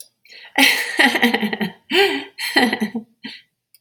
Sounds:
Laughter